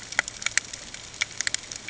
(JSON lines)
{"label": "ambient", "recorder": "HydroMoth"}